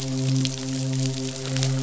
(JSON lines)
{"label": "biophony, midshipman", "recorder": "SoundTrap 500"}